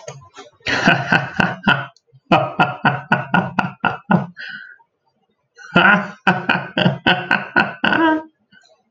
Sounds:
Laughter